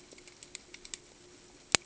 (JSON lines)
{"label": "ambient", "recorder": "HydroMoth"}